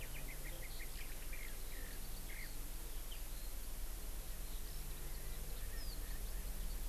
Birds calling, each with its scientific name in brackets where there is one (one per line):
Eurasian Skylark (Alauda arvensis)
Erckel's Francolin (Pternistis erckelii)